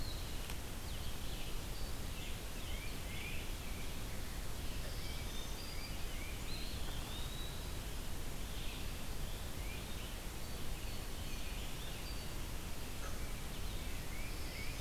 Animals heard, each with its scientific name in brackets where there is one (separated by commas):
Eastern Wood-Pewee (Contopus virens), Tufted Titmouse (Baeolophus bicolor), Black-throated Green Warbler (Setophaga virens), Red-eyed Vireo (Vireo olivaceus)